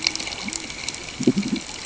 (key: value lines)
label: ambient
recorder: HydroMoth